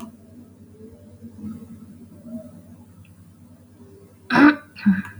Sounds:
Throat clearing